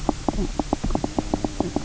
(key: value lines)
label: biophony, knock croak
recorder: SoundTrap 300